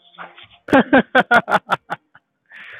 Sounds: Laughter